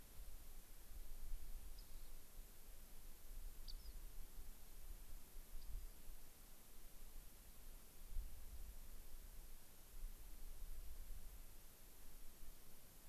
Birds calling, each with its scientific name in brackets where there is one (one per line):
Rock Wren (Salpinctes obsoletus)